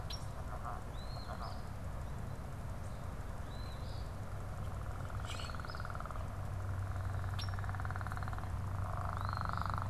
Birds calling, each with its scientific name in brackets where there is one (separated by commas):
Eastern Phoebe (Sayornis phoebe), Red-winged Blackbird (Agelaius phoeniceus), Common Grackle (Quiscalus quiscula)